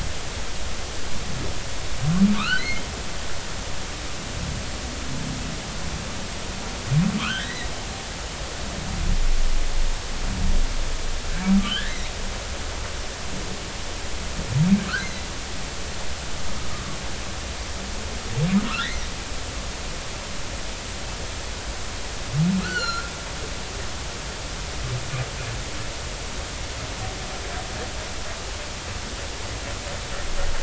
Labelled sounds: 2.3	2.8	humpback whale, 1.0 to 4.6 kHz
7.2	7.7	humpback whale, 0.99 to 3.3 kHz
11.6	12.1	humpback whale, 1.3 to 4.0 kHz
15.0	15.2	humpback whale, 3.9 to 4.2 kHz
22.6	23.1	humpback whale, 1.2 to 7.1 kHz

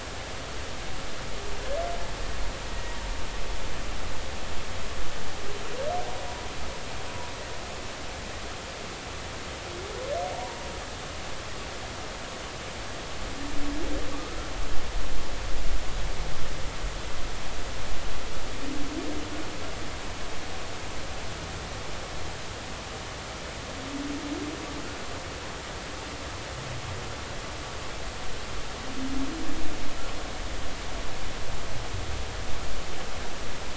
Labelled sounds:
10.3	10.6	humpback whale, 0.86 to 1.0 kHz
14.1	14.4	humpback whale, 1.1 to 1.5 kHz

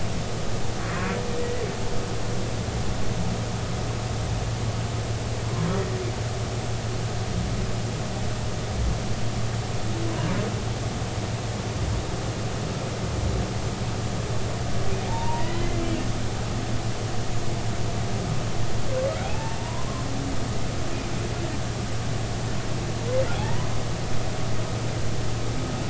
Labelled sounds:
15.1	15.8	humpback whale, 0.83 to 2.1 kHz
19.2	20.0	humpback whale, 0.80 to 2.7 kHz
23.3	23.7	humpback whale, 0.80 to 2.0 kHz

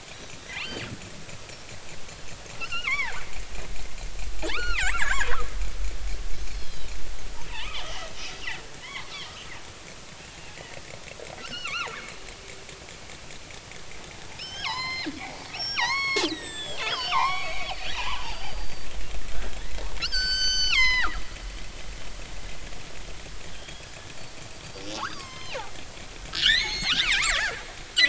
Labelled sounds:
0.4	0.9	killer whale, northern resident, G clan, 0.80 to 4.7 kHz
2.5	3.2	killer whale, northern resident, G clan, 0.80 to 5.4 kHz
4.4	5.3	killer whale, northern resident, G clan, 0.80 to 4.7 kHz
6.5	6.9	killer whale, northern resident, G clan, 2.9 to 5.2 kHz
7.5	9.5	killer whale, northern resident, G clan, 0.80 to 3.6 kHz
11.4	11.9	killer whale, northern resident, G clan, 0.83 to 4.7 kHz
14.4	18.9	killer whale, northern resident, G clan, 0.80 to 8.0 kHz
19.3	21.2	killer whale, northern resident, G clan, 0.80 to 7.7 kHz
23.5	23.9	killer whale, northern resident, G clan, 3.1 to 3.4 kHz
24.9	25.7	killer whale, northern resident, G clan, 0.80 to 6.6 kHz
26.3	27.6	killer whale, northern resident, G clan, 0.80 to 6.7 kHz

